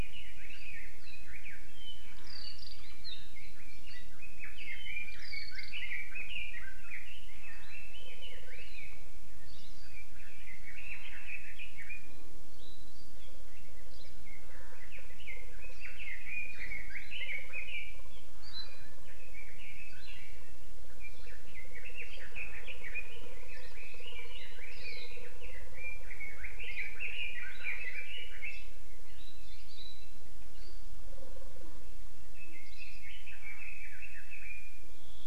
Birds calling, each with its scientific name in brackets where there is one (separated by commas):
Hawaii Creeper (Loxops mana), Hawaii Akepa (Loxops coccineus), Red-billed Leiothrix (Leiothrix lutea)